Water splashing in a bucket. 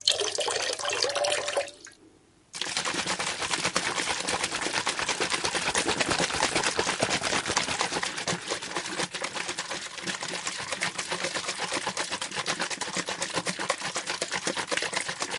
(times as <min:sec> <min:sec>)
0:00.0 0:02.1